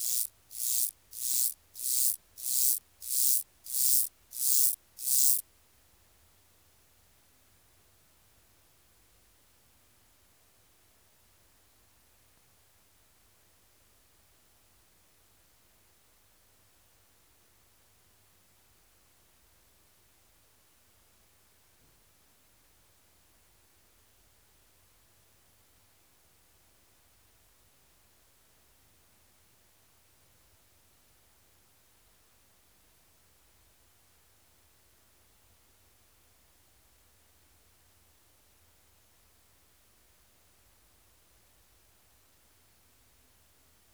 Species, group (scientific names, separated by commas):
Myrmeleotettix maculatus, Orthoptera